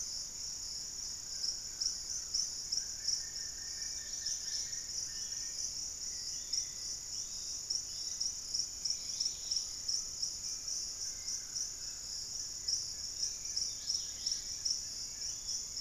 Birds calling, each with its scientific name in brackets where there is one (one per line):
Golden-crowned Spadebill (Platyrinchus coronatus)
Wing-barred Piprites (Piprites chloris)
Dusky-capped Greenlet (Pachysylvia hypoxantha)
Collared Trogon (Trogon collaris)
Black-fronted Nunbird (Monasa nigrifrons)
unidentified bird
Yellow-margined Flycatcher (Tolmomyias assimilis)
Undulated Tinamou (Crypturellus undulatus)